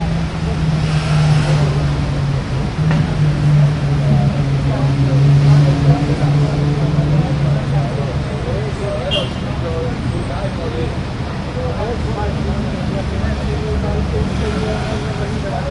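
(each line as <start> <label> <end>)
0.0 People are talking nearby outdoors on the street. 15.7
0.0 Street traffic noises in the background. 15.7
0.8 An engine revs as a vehicle passes by outdoors. 7.9
9.0 A car honks shortly once outdoors. 9.3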